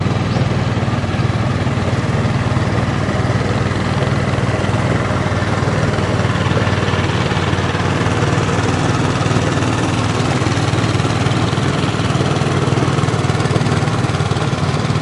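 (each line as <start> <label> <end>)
0.0 A slow boat engine hum passes nearby and gradually gets louder. 15.0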